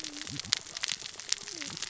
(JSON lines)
{"label": "biophony, cascading saw", "recorder": "SoundTrap 600 or HydroMoth"}